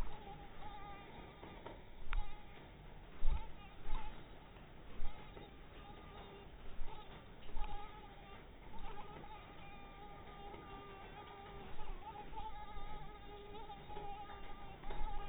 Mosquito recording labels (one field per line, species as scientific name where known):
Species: mosquito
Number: one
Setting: cup